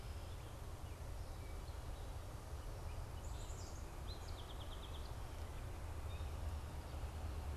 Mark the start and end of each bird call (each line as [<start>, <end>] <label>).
[3.11, 3.91] Black-capped Chickadee (Poecile atricapillus)
[3.41, 5.91] Song Sparrow (Melospiza melodia)